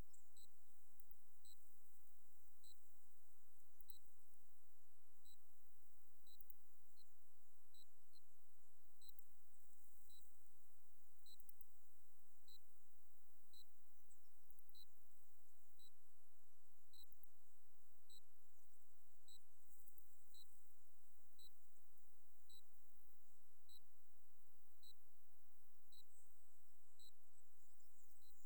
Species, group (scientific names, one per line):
Gryllus assimilis
Orthoptera